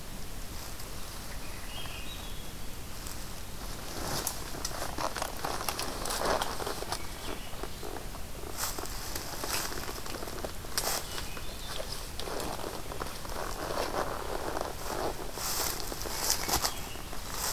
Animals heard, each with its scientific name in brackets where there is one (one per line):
Hermit Thrush (Catharus guttatus)